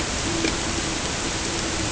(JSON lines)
{"label": "ambient", "recorder": "HydroMoth"}